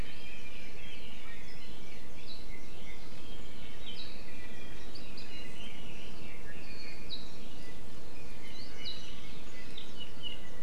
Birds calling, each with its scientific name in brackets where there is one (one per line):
Apapane (Himatione sanguinea)
Red-billed Leiothrix (Leiothrix lutea)
Iiwi (Drepanis coccinea)